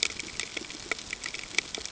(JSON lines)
{"label": "ambient", "recorder": "HydroMoth"}